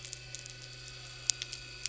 {"label": "anthrophony, boat engine", "recorder": "SoundTrap 300"}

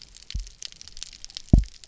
{"label": "biophony, double pulse", "recorder": "SoundTrap 300"}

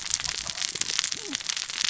{"label": "biophony, cascading saw", "recorder": "SoundTrap 600 or HydroMoth"}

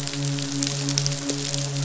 {"label": "biophony, midshipman", "recorder": "SoundTrap 500"}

